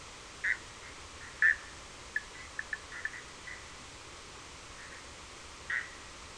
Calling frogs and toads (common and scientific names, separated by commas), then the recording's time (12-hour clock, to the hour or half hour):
Bischoff's tree frog (Boana bischoffi)
2:30am